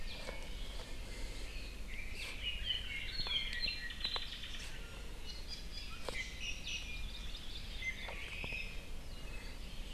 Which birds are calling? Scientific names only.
Leiothrix lutea, Himatione sanguinea, Drepanis coccinea